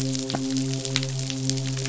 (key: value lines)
label: biophony, midshipman
recorder: SoundTrap 500